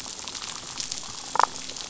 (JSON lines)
{"label": "biophony, damselfish", "recorder": "SoundTrap 500"}